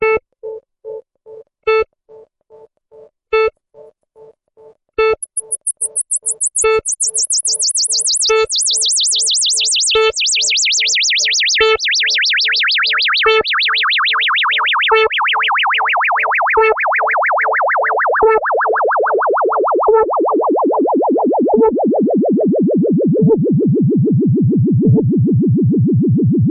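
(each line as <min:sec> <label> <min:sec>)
0:00.0 Electric dance music plays repeatedly in a rhythmic pattern. 0:26.5
0:05.0 An electronic dance music tone gradually increases in rhythm. 0:26.5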